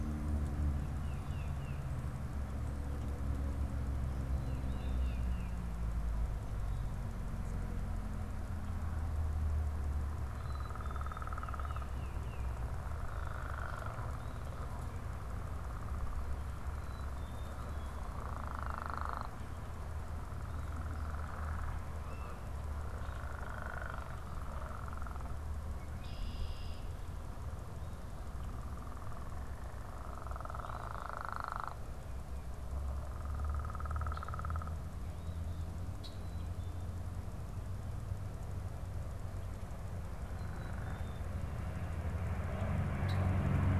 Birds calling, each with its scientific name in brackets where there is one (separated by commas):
Tufted Titmouse (Baeolophus bicolor), Red-winged Blackbird (Agelaius phoeniceus), Black-capped Chickadee (Poecile atricapillus)